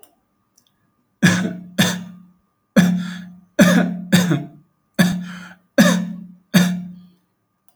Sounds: Cough